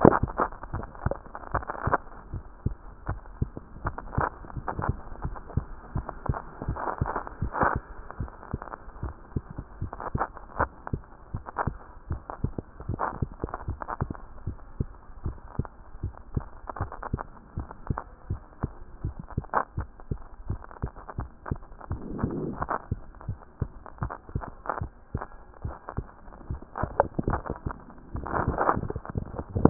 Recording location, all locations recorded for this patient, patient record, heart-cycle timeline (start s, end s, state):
mitral valve (MV)
aortic valve (AV)+pulmonary valve (PV)+tricuspid valve (TV)+mitral valve (MV)
#Age: Child
#Sex: Female
#Height: 134.0 cm
#Weight: 29.4 kg
#Pregnancy status: False
#Murmur: Absent
#Murmur locations: nan
#Most audible location: nan
#Systolic murmur timing: nan
#Systolic murmur shape: nan
#Systolic murmur grading: nan
#Systolic murmur pitch: nan
#Systolic murmur quality: nan
#Diastolic murmur timing: nan
#Diastolic murmur shape: nan
#Diastolic murmur grading: nan
#Diastolic murmur pitch: nan
#Diastolic murmur quality: nan
#Outcome: Normal
#Campaign: 2014 screening campaign
0.00	2.32	unannotated
2.32	2.44	S1
2.44	2.66	systole
2.66	2.73	S2
2.73	3.08	diastole
3.08	3.20	S1
3.20	3.40	systole
3.40	3.47	S2
3.47	3.84	diastole
3.84	3.96	S1
3.96	4.16	systole
4.16	4.23	S2
4.23	4.56	diastole
4.56	4.66	S1
4.66	4.86	systole
4.86	4.93	S2
4.93	5.24	diastole
5.24	5.34	S1
5.34	5.56	systole
5.56	5.64	S2
5.64	5.96	diastole
5.96	6.06	S1
6.06	6.28	systole
6.28	6.35	S2
6.35	6.69	diastole
6.69	6.78	S1
6.78	7.01	systole
7.01	7.09	S2
7.09	7.42	diastole
7.42	29.70	unannotated